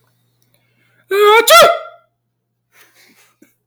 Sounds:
Sneeze